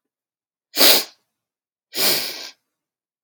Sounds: Sniff